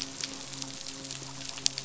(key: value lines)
label: biophony, midshipman
recorder: SoundTrap 500